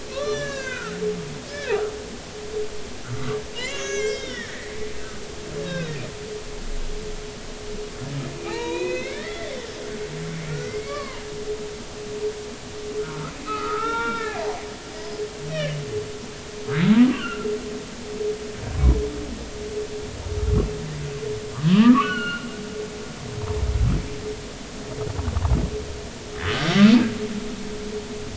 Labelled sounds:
0.1	0.9	humpback whale, 0.99 to 7.6 kHz
1.5	1.7	humpback whale, 1.5 to 1.8 kHz
3.1	4.7	humpback whale, 1.0 to 6.7 kHz
5.6	6.0	humpback whale, 1.3 to 2.8 kHz
8.3	9.5	humpback whale, 0.80 to 4.3 kHz
10.5	11.2	humpback whale, 0.90 to 2.4 kHz
13.0	14.4	humpback whale, 0.83 to 3.7 kHz
15.5	15.8	humpback whale, 1.7 to 3.2 kHz
17.1	17.5	humpback whale, 1.3 to 3.2 kHz
21.7	22.5	humpback whale, 0.86 to 4.5 kHz
26.5	26.7	humpback whale, 1.5 to 1.7 kHz

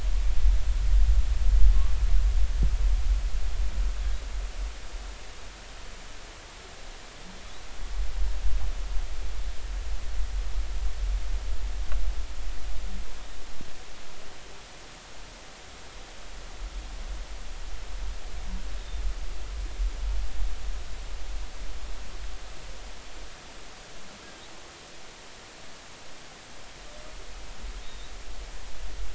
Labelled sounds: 27.8	28.2	humpback whale, 3.6 to 3.9 kHz

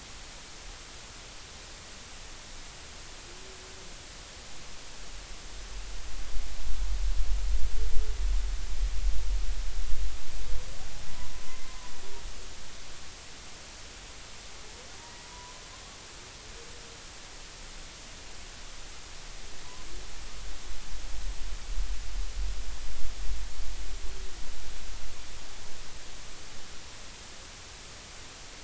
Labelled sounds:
11.5	11.9	humpback whale, 0.93 to 2.1 kHz
15.0	15.5	humpback whale, 0.90 to 2.0 kHz

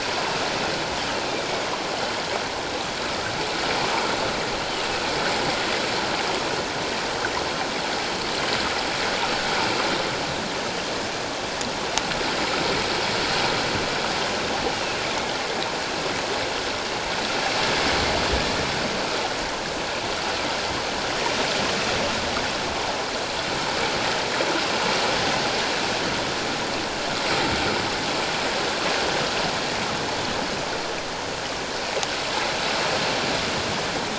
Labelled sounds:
1.3	1.7	killer whale, northern resident, 2.2 to 2.5 kHz
4.6	4.9	killer whale, northern resident, 2.7 to 3.1 kHz

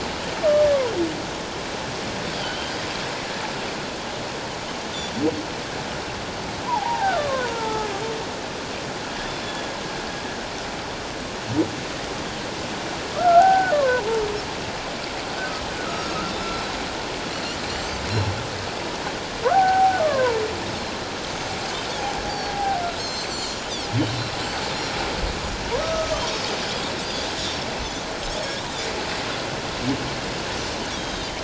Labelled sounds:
2.4	2.7	Pacific white-sided dolphin, 3.0 to 3.2 kHz
6.6	7.9	humpback whale, 0.78 to 1.4 kHz
9.4	9.7	humpback whale, 3.3 to 3.5 kHz
13.1	14.1	humpback whale, 0.78 to 1.6 kHz
15.9	16.1	humpback whale, 1.2 to 1.4 kHz
15.9	16.2	Pacific white-sided dolphin, 5.3 to 5.7 kHz
19.4	20.4	humpback whale, 0.78 to 1.8 kHz
22.3	22.6	Pacific white-sided dolphin, 4.3 to 4.8 kHz
22.5	22.8	humpback whale, 0.78 to 0.88 kHz
23.0	24.4	Pacific white-sided dolphin, 4.0 to 7.8 kHz
25.8	26.1	humpback whale, 1.2 to 1.3 kHz
26.1	26.5	Pacific white-sided dolphin, 5.1 to 6.4 kHz
27.1	27.7	Pacific white-sided dolphin, 3.4 to 5.8 kHz
28.4	28.7	Pacific white-sided dolphin, 3.2 to 3.8 kHz
30.9	31.4	Pacific white-sided dolphin, 3.0 to 6.5 kHz

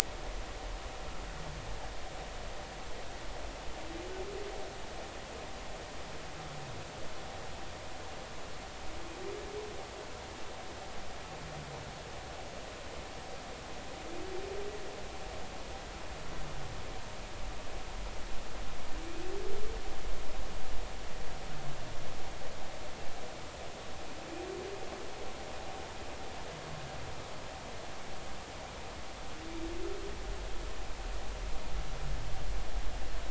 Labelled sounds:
19.1	19.3	humpback whale, 2.3 to 2.6 kHz

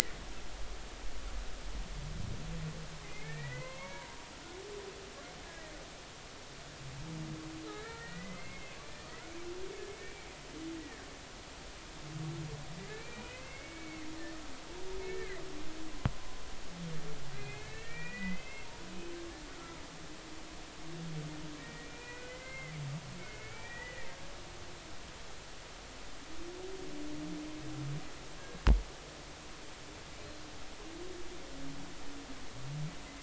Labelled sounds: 3.0	4.1	humpback whale, 0.90 to 4.4 kHz
7.7	8.7	humpback whale, 1.2 to 2.3 kHz
9.9	11.0	humpback whale, 1.5 to 2.4 kHz
12.8	14.1	humpback whale, 1.9 to 2.8 kHz
15.1	15.4	humpback whale, 1.5 to 1.9 kHz
16.0	18.7	humpback whale, 1.7 to 2.8 kHz
21.6	22.7	humpback whale, 1.8 to 2.5 kHz
23.0	24.1	humpback whale, 1.7 to 2.5 kHz

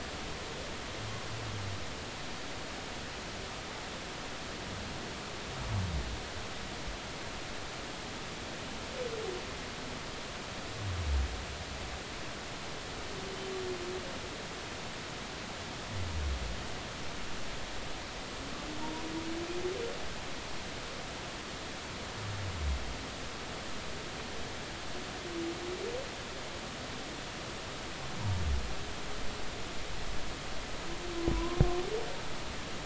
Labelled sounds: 31.1	31.6	humpback whale, 0.93 to 1.1 kHz

